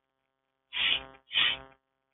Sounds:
Sniff